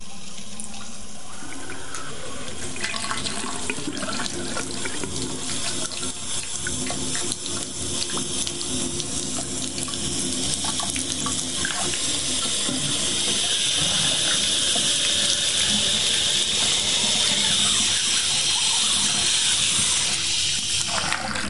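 Water dripping quietly. 0:00.0 - 0:02.8
Water flowing through pipes. 0:00.0 - 0:21.5
Water flowing from a faucet. 0:02.7 - 0:21.5

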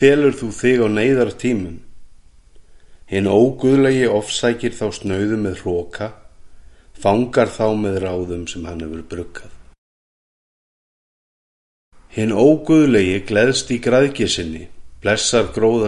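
A man is speaking. 0:00.0 - 0:01.8
A person inhales quietly. 0:02.6 - 0:03.1
A man is speaking. 0:03.0 - 0:06.3
A person inhales quietly. 0:06.3 - 0:07.0
A man is speaking. 0:07.0 - 0:09.7
A man is speaking. 0:12.1 - 0:15.9

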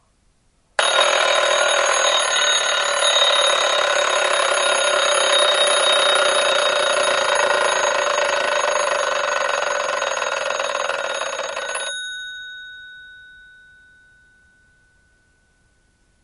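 An alarm clock rings loudly and gradually decreases. 0:00.8 - 0:12.5

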